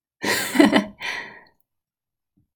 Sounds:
Laughter